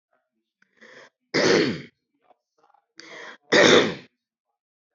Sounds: Throat clearing